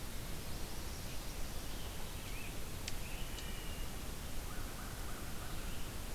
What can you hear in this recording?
Chestnut-sided Warbler, Wood Thrush, American Crow